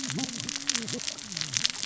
{"label": "biophony, cascading saw", "recorder": "SoundTrap 600 or HydroMoth"}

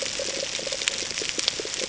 {"label": "ambient", "recorder": "HydroMoth"}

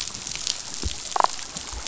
{"label": "biophony, damselfish", "recorder": "SoundTrap 500"}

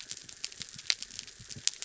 {"label": "anthrophony, mechanical", "recorder": "SoundTrap 300"}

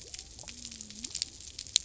{"label": "biophony", "recorder": "SoundTrap 300"}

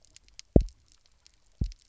{"label": "biophony, double pulse", "recorder": "SoundTrap 300"}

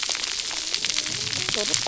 {"label": "biophony, cascading saw", "recorder": "SoundTrap 300"}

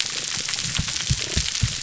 {"label": "biophony, pulse", "recorder": "SoundTrap 300"}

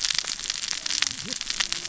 {"label": "biophony, cascading saw", "recorder": "SoundTrap 600 or HydroMoth"}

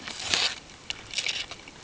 {"label": "ambient", "recorder": "HydroMoth"}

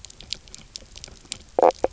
{"label": "biophony, knock croak", "recorder": "SoundTrap 300"}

